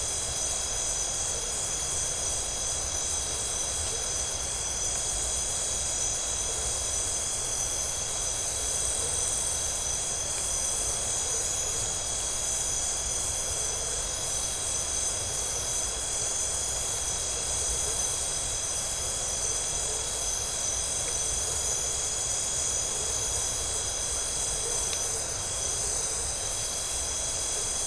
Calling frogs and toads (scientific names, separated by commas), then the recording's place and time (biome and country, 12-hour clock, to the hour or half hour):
none
Atlantic Forest, Brazil, 1:30am